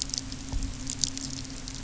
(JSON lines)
{"label": "anthrophony, boat engine", "recorder": "SoundTrap 300"}